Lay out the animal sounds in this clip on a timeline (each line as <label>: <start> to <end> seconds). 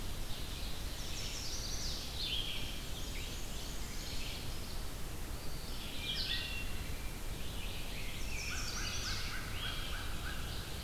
Red-eyed Vireo (Vireo olivaceus): 0.0 to 9.4 seconds
Chestnut-sided Warbler (Setophaga pensylvanica): 0.8 to 2.0 seconds
Black-and-white Warbler (Mniotilta varia): 2.8 to 4.2 seconds
Wood Thrush (Hylocichla mustelina): 6.0 to 6.9 seconds
Rose-breasted Grosbeak (Pheucticus ludovicianus): 7.7 to 10.1 seconds
Chestnut-sided Warbler (Setophaga pensylvanica): 8.2 to 9.4 seconds
American Crow (Corvus brachyrhynchos): 8.4 to 10.6 seconds